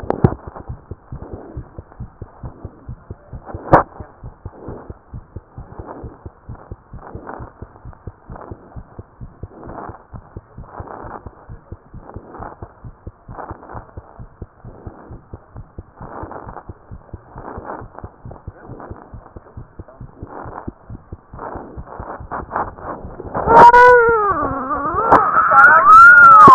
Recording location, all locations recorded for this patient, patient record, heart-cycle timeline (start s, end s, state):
mitral valve (MV)
aortic valve (AV)+mitral valve (MV)
#Age: Child
#Sex: Male
#Height: 77.0 cm
#Weight: 10.2 kg
#Pregnancy status: False
#Murmur: Absent
#Murmur locations: nan
#Most audible location: nan
#Systolic murmur timing: nan
#Systolic murmur shape: nan
#Systolic murmur grading: nan
#Systolic murmur pitch: nan
#Systolic murmur quality: nan
#Diastolic murmur timing: nan
#Diastolic murmur shape: nan
#Diastolic murmur grading: nan
#Diastolic murmur pitch: nan
#Diastolic murmur quality: nan
#Outcome: Normal
#Campaign: 2014 screening campaign
0.00	0.68	unannotated
0.68	0.78	S1
0.78	0.90	systole
0.90	0.98	S2
0.98	1.12	diastole
1.12	1.24	S1
1.24	1.32	systole
1.32	1.40	S2
1.40	1.54	diastole
1.54	1.66	S1
1.66	1.76	systole
1.76	1.84	S2
1.84	1.98	diastole
1.98	2.10	S1
2.10	2.20	systole
2.20	2.28	S2
2.28	2.42	diastole
2.42	2.54	S1
2.54	2.62	systole
2.62	2.72	S2
2.72	2.88	diastole
2.88	2.98	S1
2.98	3.08	systole
3.08	3.18	S2
3.18	3.32	diastole
3.32	3.42	S1
3.42	3.52	systole
3.52	3.58	S2
3.58	3.70	diastole
3.70	26.54	unannotated